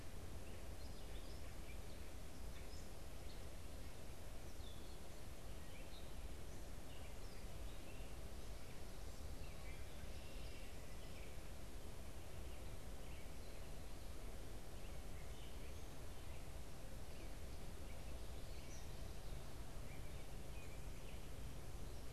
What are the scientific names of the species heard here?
unidentified bird, Dumetella carolinensis, Agelaius phoeniceus